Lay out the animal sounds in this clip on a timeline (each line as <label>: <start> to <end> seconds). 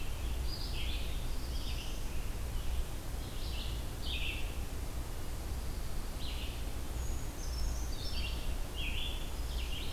Red-eyed Vireo (Vireo olivaceus): 0.0 to 9.9 seconds
Black-throated Blue Warbler (Setophaga caerulescens): 0.8 to 2.1 seconds
Brown Creeper (Certhia americana): 6.8 to 8.4 seconds